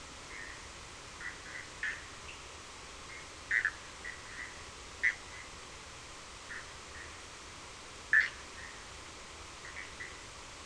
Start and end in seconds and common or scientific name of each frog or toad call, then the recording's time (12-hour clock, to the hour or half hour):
0.0	10.6	Bischoff's tree frog
2.1	2.6	Cochran's lime tree frog
2:30am